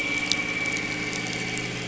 {"label": "anthrophony, boat engine", "recorder": "SoundTrap 500"}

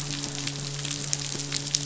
{"label": "biophony, midshipman", "recorder": "SoundTrap 500"}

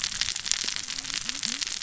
{"label": "biophony, cascading saw", "recorder": "SoundTrap 600 or HydroMoth"}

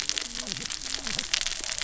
{"label": "biophony, cascading saw", "recorder": "SoundTrap 600 or HydroMoth"}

